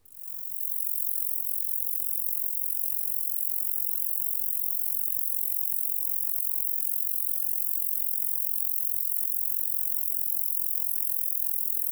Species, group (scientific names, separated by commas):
Roeseliana roeselii, Orthoptera